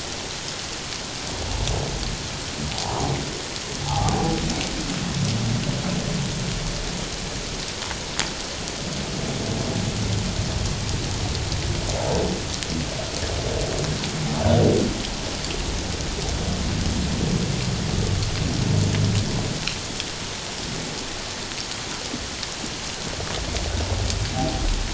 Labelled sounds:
3.8	4.4	humpback whale, 0.78 to 1.3 kHz
24.3	24.6	humpback whale, 0.78 to 0.88 kHz

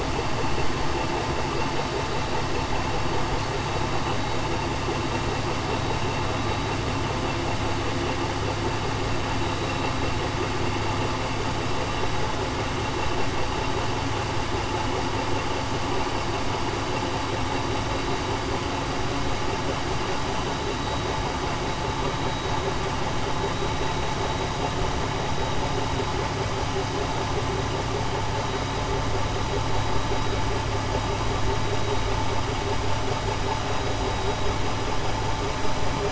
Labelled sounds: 20.8	21.1	vessel noise, 3.8 to 3.9 kHz

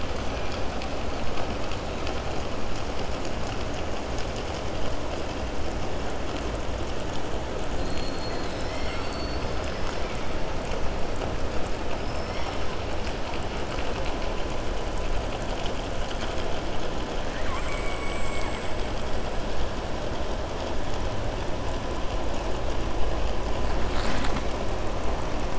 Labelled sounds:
11.9	12.5	killer whale, southern resident, 5.0 to 5.7 kHz
17.2	18.7	killer whale, southern resident, 1.0 to 3.1 kHz

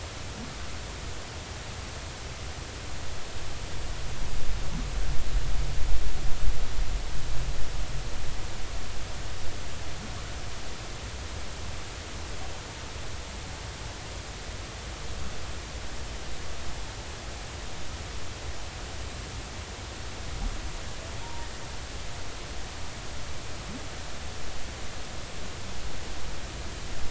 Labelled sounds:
21.2	21.5	humpback whale, 0.90 to 0.99 kHz

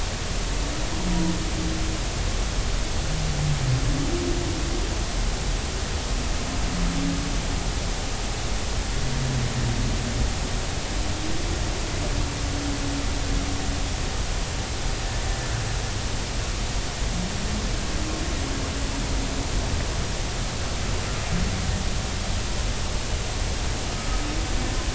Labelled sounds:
24.0	24.2	humpback whale, 1.2 to 1.3 kHz

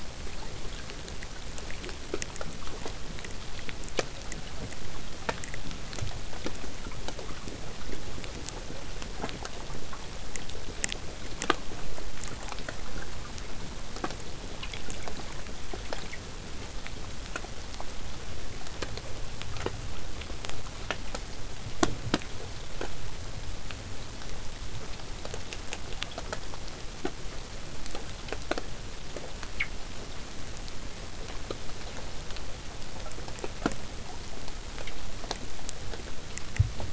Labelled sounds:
12.8	13.3	killer whale, southern resident, 0.15 to 1.9 kHz

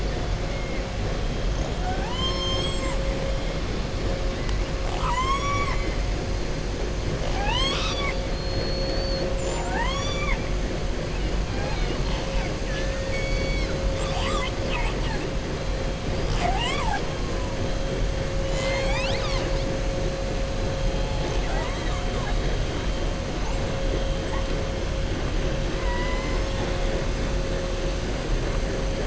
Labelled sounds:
1.7	3.0	killer whale, southern resident, 0.72 to 7.9 kHz
4.8	5.9	killer whale, southern resident, 0.83 to 8.0 kHz
8.2	9.3	killer whale, southern resident, 4.2 to 4.8 kHz
12.6	13.8	killer whale, southern resident, 1.4 to 5.6 kHz

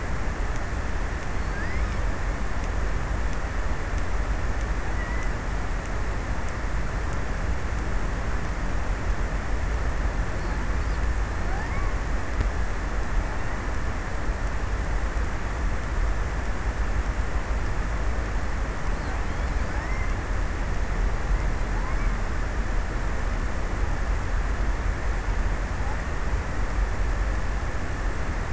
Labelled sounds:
0.8	1.8	killer whale, offshore, 0.77 to 2.8 kHz
4.0	5.9	killer whale, offshore, 0.16 to 2.4 kHz
11.0	12.4	killer whale, offshore, 0.43 to 2.5 kHz
19.1	20.6	killer whale, offshore, 0.49 to 2.5 kHz
21.4	23.2	killer whale, offshore, 0.47 to 2.9 kHz

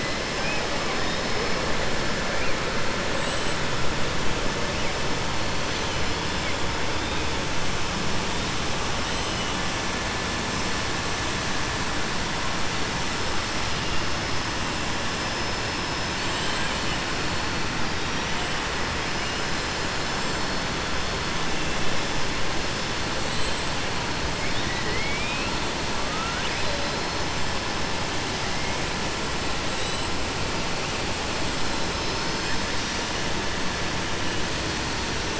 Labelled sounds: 3.1	3.6	killer whale, southern resident, 6.8 to 8.0 kHz
16.2	16.7	killer whale, southern resident, 7.2 to 8.0 kHz
24.4	25.5	killer whale, southern resident, 1.9 to 4.3 kHz
26.0	27.0	killer whale, southern resident, 1.2 to 5.0 kHz

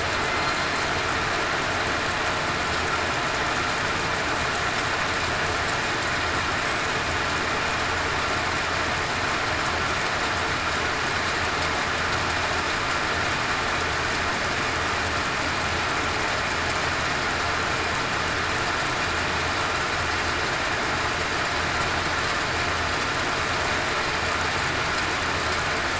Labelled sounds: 0.2	0.5	killer whale, southern resident, 2.0 to 2.1 kHz

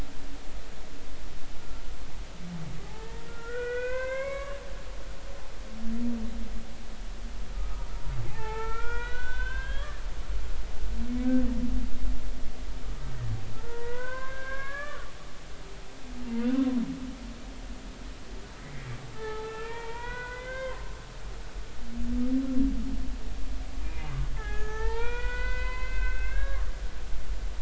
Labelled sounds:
2.8	4.6	humpback whale, 0.80 to 4.2 kHz
7.6	10.0	humpback whale, 0.80 to 3.7 kHz
11.1	11.4	humpback whale, 2.1 to 2.3 kHz
13.6	15.0	humpback whale, 0.90 to 2.4 kHz
19.1	20.9	humpback whale, 0.80 to 3.5 kHz
24.3	26.7	humpback whale, 0.80 to 6.5 kHz

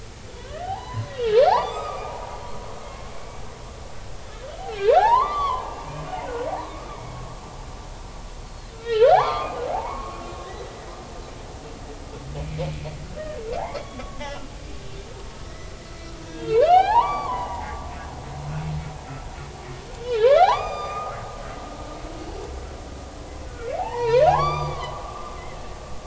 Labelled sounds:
0.4	1.1	humpback whale, 0.80 to 4.1 kHz
1.5	2.1	humpback whale, 0.80 to 4.8 kHz
2.8	3.4	humpback whale, 2.1 to 2.4 kHz
4.8	5.9	humpback whale, 0.80 to 4.7 kHz
6.8	7.2	humpback whale, 2.2 to 2.4 kHz
8.4	11.0	humpback whale, 0.80 to 4.8 kHz
12.4	12.7	humpback whale, 2.0 to 2.5 kHz
13.6	14.5	humpback whale, 1.1 to 3.5 kHz
15.5	15.7	humpback whale, 1.9 to 2.0 kHz
16.3	17.8	humpback whale, 0.80 to 4.7 kHz
20.0	21.2	humpback whale, 0.80 to 7.3 kHz
23.5	25.0	humpback whale, 0.80 to 6.1 kHz

